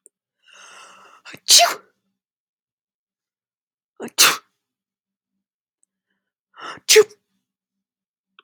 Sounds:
Sneeze